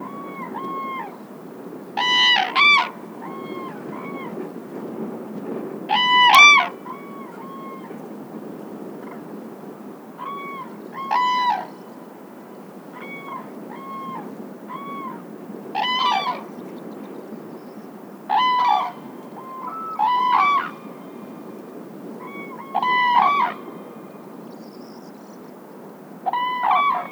Is it a dog making the noise?
no